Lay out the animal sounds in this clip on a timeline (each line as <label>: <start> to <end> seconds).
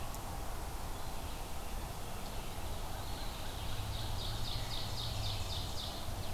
Red-eyed Vireo (Vireo olivaceus): 0.0 to 6.3 seconds
Blue Jay (Cyanocitta cristata): 1.5 to 2.3 seconds
American Crow (Corvus brachyrhynchos): 2.8 to 4.3 seconds
Eastern Wood-Pewee (Contopus virens): 2.9 to 3.7 seconds
Ovenbird (Seiurus aurocapilla): 3.4 to 6.3 seconds